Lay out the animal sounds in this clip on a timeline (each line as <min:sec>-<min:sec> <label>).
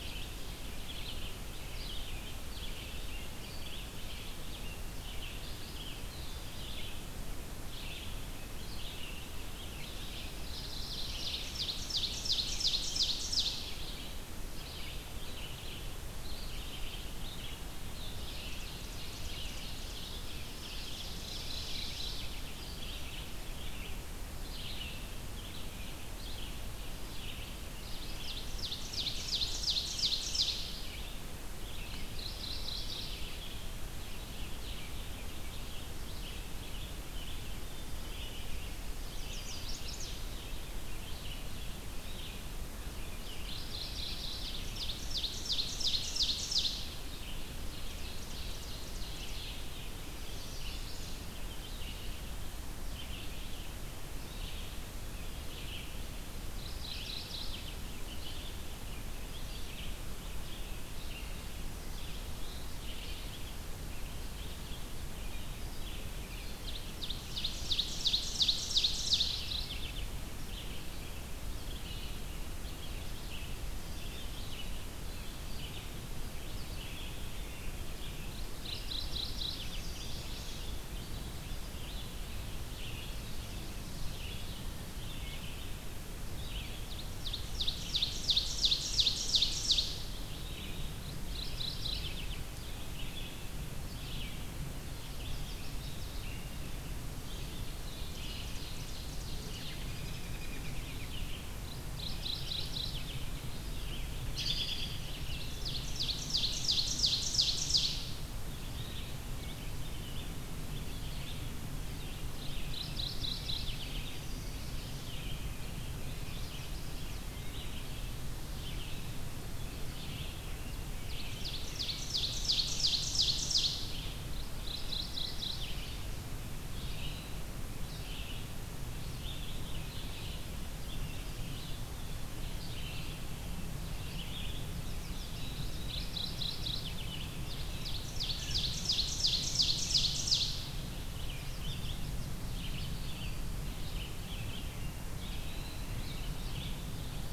0:00.0-0:48.2 Red-eyed Vireo (Vireo olivaceus)
0:10.4-0:11.6 Mourning Warbler (Geothlypis philadelphia)
0:10.7-0:13.8 Ovenbird (Seiurus aurocapilla)
0:18.3-0:22.2 Ovenbird (Seiurus aurocapilla)
0:21.1-0:22.5 Mourning Warbler (Geothlypis philadelphia)
0:27.7-0:30.9 Ovenbird (Seiurus aurocapilla)
0:31.9-0:33.5 Mourning Warbler (Geothlypis philadelphia)
0:38.9-0:40.3 Chestnut-sided Warbler (Setophaga pensylvanica)
0:43.2-0:44.7 Mourning Warbler (Geothlypis philadelphia)
0:44.4-0:47.0 Ovenbird (Seiurus aurocapilla)
0:47.6-0:49.6 Ovenbird (Seiurus aurocapilla)
0:49.1-1:45.8 Red-eyed Vireo (Vireo olivaceus)
0:50.0-0:51.3 Chestnut-sided Warbler (Setophaga pensylvanica)
0:56.3-0:57.8 Mourning Warbler (Geothlypis philadelphia)
1:06.4-1:09.7 Ovenbird (Seiurus aurocapilla)
1:08.8-1:10.1 Mourning Warbler (Geothlypis philadelphia)
1:18.5-1:19.9 Mourning Warbler (Geothlypis philadelphia)
1:19.5-1:20.8 Chestnut-sided Warbler (Setophaga pensylvanica)
1:26.7-1:30.2 Ovenbird (Seiurus aurocapilla)
1:31.0-1:32.5 Mourning Warbler (Geothlypis philadelphia)
1:34.8-1:36.3 Chestnut-sided Warbler (Setophaga pensylvanica)
1:37.5-1:39.9 Ovenbird (Seiurus aurocapilla)
1:39.8-1:41.2 American Robin (Turdus migratorius)
1:41.6-1:43.3 Mourning Warbler (Geothlypis philadelphia)
1:44.3-1:45.1 American Robin (Turdus migratorius)
1:45.1-1:48.3 Ovenbird (Seiurus aurocapilla)
1:48.4-2:27.3 Red-eyed Vireo (Vireo olivaceus)
1:52.5-1:54.3 Mourning Warbler (Geothlypis philadelphia)
1:54.0-1:55.2 Chestnut-sided Warbler (Setophaga pensylvanica)
1:56.0-1:57.3 Chestnut-sided Warbler (Setophaga pensylvanica)
2:00.9-2:04.0 Ovenbird (Seiurus aurocapilla)
2:04.3-2:06.0 Mourning Warbler (Geothlypis philadelphia)
2:14.5-2:15.8 Chestnut-sided Warbler (Setophaga pensylvanica)
2:15.6-2:17.2 Mourning Warbler (Geothlypis philadelphia)
2:17.1-2:20.6 Ovenbird (Seiurus aurocapilla)
2:21.2-2:22.3 Chestnut-sided Warbler (Setophaga pensylvanica)
2:22.9-2:23.6 Eastern Wood-Pewee (Contopus virens)